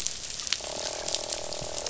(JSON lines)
{"label": "biophony, croak", "recorder": "SoundTrap 500"}